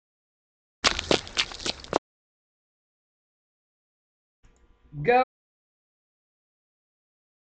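At 0.83 seconds, running is audible. Then at 4.97 seconds, a voice says "Go."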